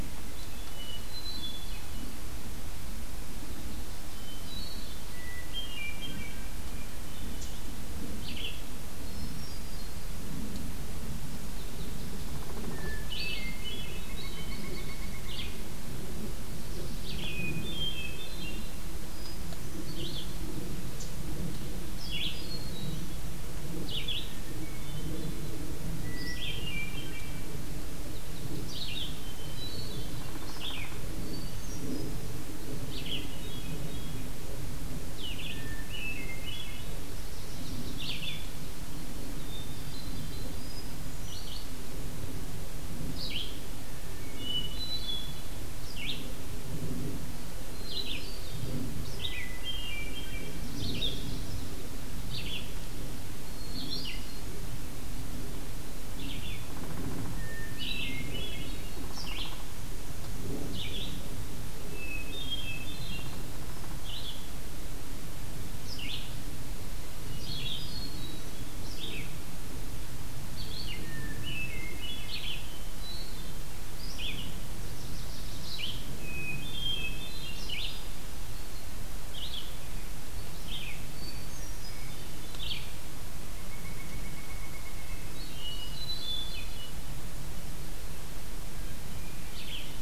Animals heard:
Chestnut-sided Warbler (Setophaga pensylvanica), Pileated Woodpecker (Dryocopus pileatus), unknown woodpecker, Red-eyed Vireo (Vireo olivaceus), Hermit Thrush (Catharus guttatus)

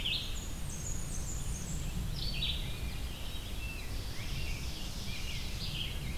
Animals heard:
Rose-breasted Grosbeak (Pheucticus ludovicianus), Red-eyed Vireo (Vireo olivaceus), Blackburnian Warbler (Setophaga fusca), Ovenbird (Seiurus aurocapilla)

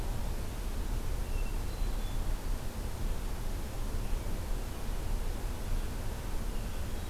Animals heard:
Hermit Thrush (Catharus guttatus)

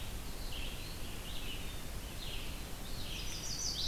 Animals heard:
Red-eyed Vireo (Vireo olivaceus), Chestnut-sided Warbler (Setophaga pensylvanica)

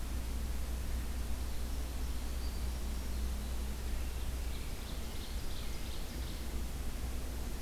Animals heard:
Ovenbird (Seiurus aurocapilla)

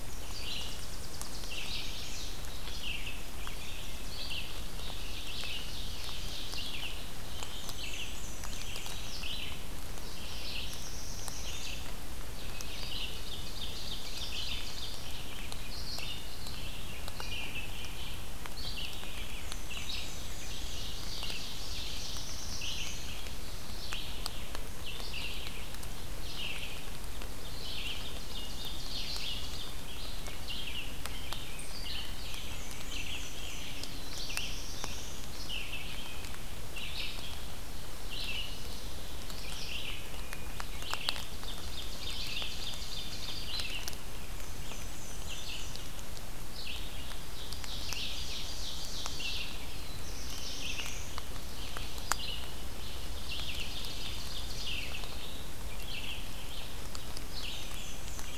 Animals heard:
Wood Thrush (Hylocichla mustelina), Black-throated Blue Warbler (Setophaga caerulescens), Chestnut-sided Warbler (Setophaga pensylvanica), Tennessee Warbler (Leiothlypis peregrina), Black-and-white Warbler (Mniotilta varia), Red-eyed Vireo (Vireo olivaceus), Ovenbird (Seiurus aurocapilla)

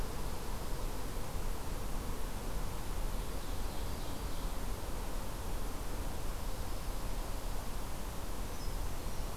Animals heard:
Ovenbird (Seiurus aurocapilla), Brown Creeper (Certhia americana)

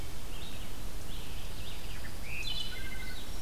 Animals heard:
Dark-eyed Junco (Junco hyemalis), Wood Thrush (Hylocichla mustelina), Red-eyed Vireo (Vireo olivaceus)

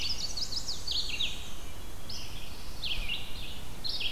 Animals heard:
Chestnut-sided Warbler (Setophaga pensylvanica), Black-and-white Warbler (Mniotilta varia), Red-eyed Vireo (Vireo olivaceus)

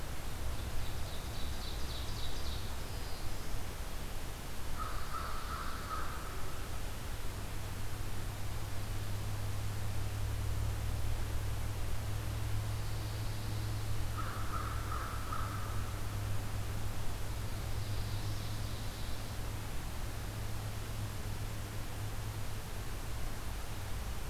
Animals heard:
Black-throated Blue Warbler (Setophaga caerulescens), Pine Warbler (Setophaga pinus), American Crow (Corvus brachyrhynchos), Ovenbird (Seiurus aurocapilla)

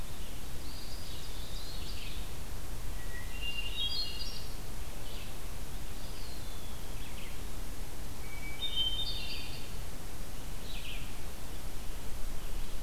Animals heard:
Eastern Wood-Pewee (Contopus virens), Red-eyed Vireo (Vireo olivaceus), Hermit Thrush (Catharus guttatus)

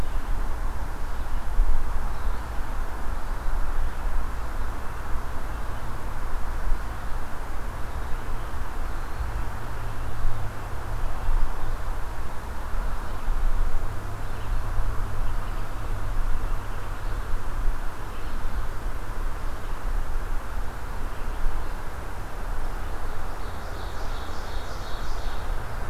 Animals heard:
Ovenbird (Seiurus aurocapilla)

